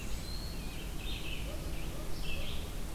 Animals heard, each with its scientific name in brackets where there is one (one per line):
Red-eyed Vireo (Vireo olivaceus)